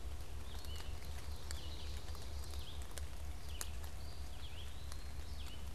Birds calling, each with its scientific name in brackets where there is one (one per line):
Ovenbird (Seiurus aurocapilla)
Eastern Wood-Pewee (Contopus virens)
Red-eyed Vireo (Vireo olivaceus)